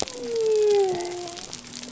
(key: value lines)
label: biophony
recorder: SoundTrap 300